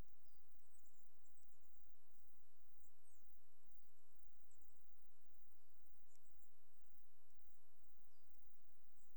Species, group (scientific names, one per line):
Platycleis grisea
Orthoptera